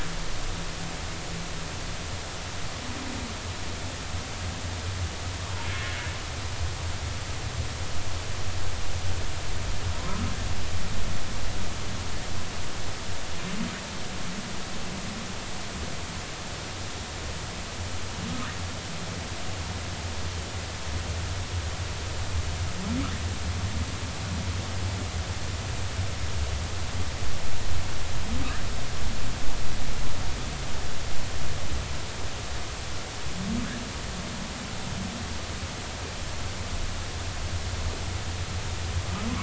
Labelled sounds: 10.1	10.3	humpback whale, 1.2 to 1.4 kHz

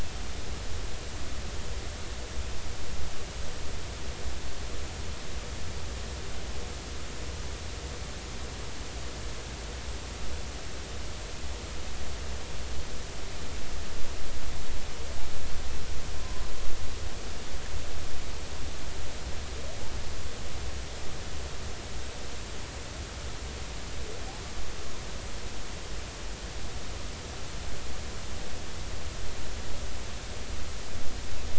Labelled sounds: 16.2	16.5	humpback whale, 0.96 to 1.1 kHz

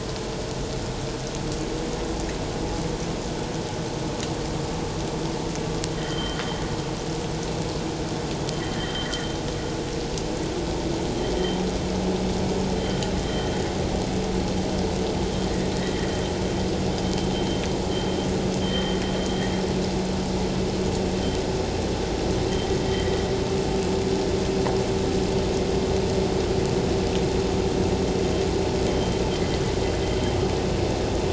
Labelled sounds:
5.9	6.4	vessel noise, 1.8 to 3.2 kHz
8.5	9.1	vessel noise, 1.7 to 3.2 kHz
13.2	13.5	vessel noise, 3.1 to 3.2 kHz
15.8	16.1	vessel noise, 1.8 to 2.1 kHz
18.6	19.0	vessel noise, 3.0 to 3.2 kHz
22.9	23.1	vessel noise, 1.8 to 2.1 kHz
28.9	29.2	vessel noise, 3.1 to 3.2 kHz

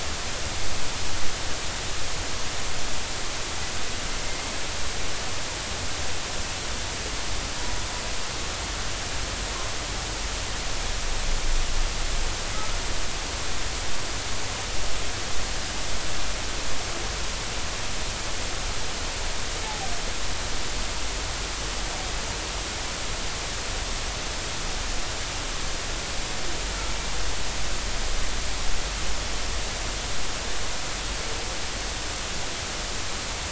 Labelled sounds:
19.6	19.9	humpback whale, 0.80 to 0.93 kHz

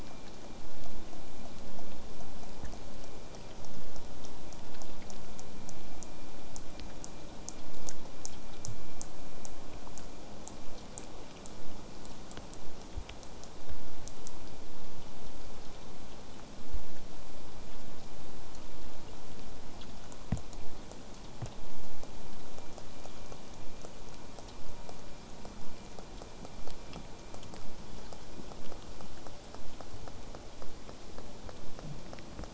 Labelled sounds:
6.5	11.6	killer whale, southern resident, J pod, 3.9 to 8.0 kHz
14.6	19.6	vessel noise, 0 to 8.0 kHz

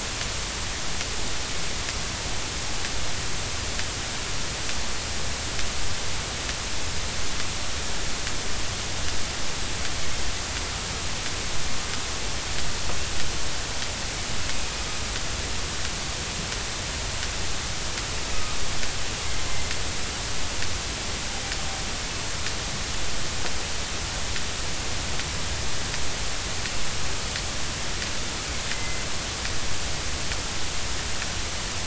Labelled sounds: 28.7	29.0	killer whale, northern resident, A clan, AA subclan, 2.0 to 2.1 kHz

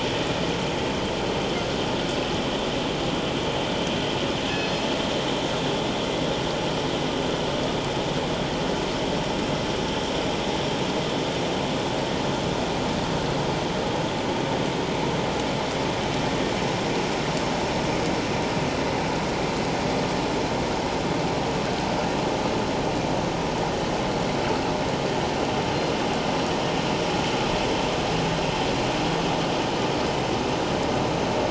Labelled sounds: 4.4	4.9	killer whale, northern resident, G clan, 1.6 to 5.2 kHz

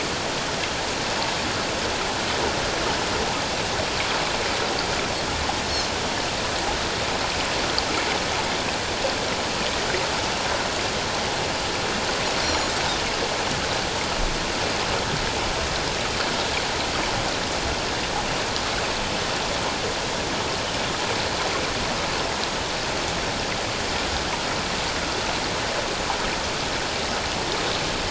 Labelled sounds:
12.4	12.7	Pacific white-sided dolphin, 4.1 to 7.1 kHz

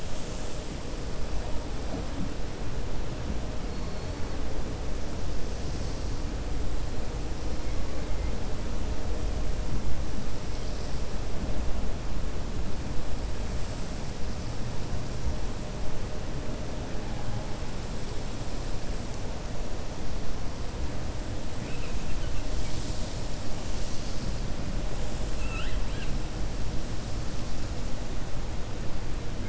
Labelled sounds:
25.3	26.1	killer whale, 1.3 to 4.1 kHz

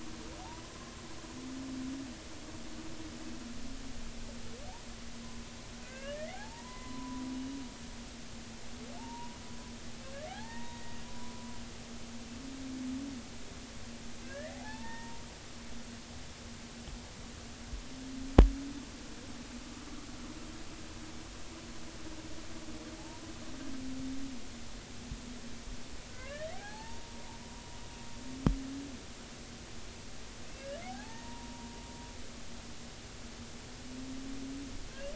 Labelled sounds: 0.4	0.7	humpback whale, 0.80 to 1.1 kHz
5.8	7.2	humpback whale, 0.80 to 2.9 kHz
9.0	9.4	humpback whale, 0.83 to 1.0 kHz
10.3	11.5	humpback whale, 0.80 to 2.0 kHz
14.2	15.2	humpback whale, 0.80 to 2.1 kHz
23.0	23.2	humpback whale, 0.80 to 0.99 kHz
26.1	27.2	humpback whale, 0.80 to 2.2 kHz
30.4	31.7	humpback whale, 0.80 to 3.0 kHz

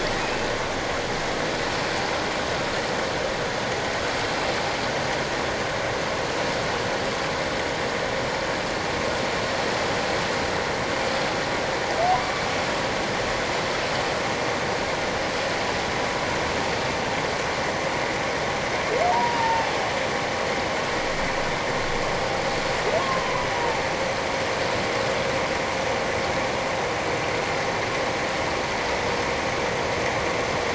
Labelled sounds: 12.2	12.5	humpback whale, 2.2 to 2.3 kHz
19.1	19.7	humpback whale, 0.78 to 1.0 kHz
23.0	23.8	humpback whale, 0.78 to 1.3 kHz

